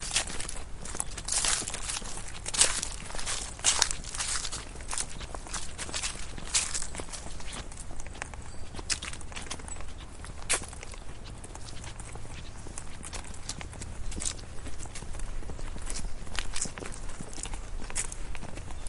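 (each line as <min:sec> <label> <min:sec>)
0:00.0 Footsteps on gravel or dirt fading and repeating. 0:18.9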